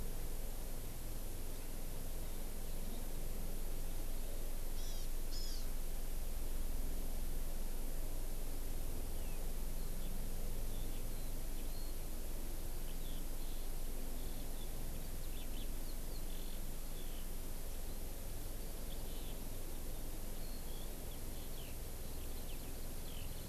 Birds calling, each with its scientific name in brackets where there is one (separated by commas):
Hawaii Amakihi (Chlorodrepanis virens), Eurasian Skylark (Alauda arvensis)